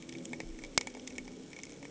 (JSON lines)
{"label": "anthrophony, boat engine", "recorder": "HydroMoth"}